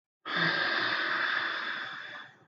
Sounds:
Sigh